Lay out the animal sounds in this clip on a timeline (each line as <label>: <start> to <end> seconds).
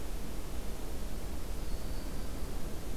Yellow-rumped Warbler (Setophaga coronata): 1.3 to 2.5 seconds
Black-throated Green Warbler (Setophaga virens): 1.5 to 2.3 seconds